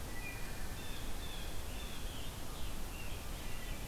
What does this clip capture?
Wood Thrush, Blue Jay, Rose-breasted Grosbeak